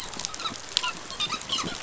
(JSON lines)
{"label": "biophony, dolphin", "recorder": "SoundTrap 500"}